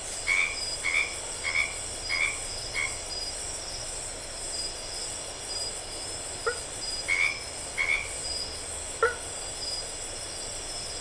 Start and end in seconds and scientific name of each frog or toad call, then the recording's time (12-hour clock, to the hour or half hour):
0.0	3.0	Boana albomarginata
6.4	6.7	Boana faber
7.0	8.2	Boana albomarginata
8.9	9.2	Boana faber
~8pm